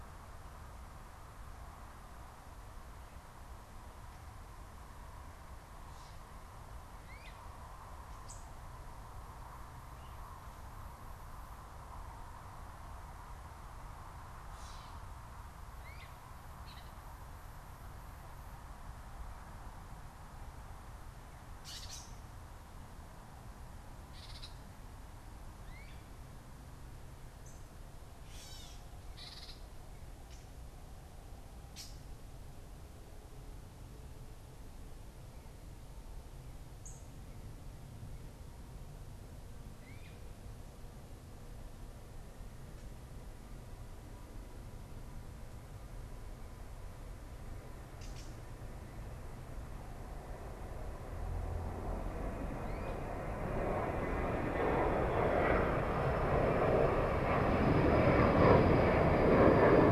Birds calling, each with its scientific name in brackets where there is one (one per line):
unidentified bird
Gray Catbird (Dumetella carolinensis)
Great Crested Flycatcher (Myiarchus crinitus)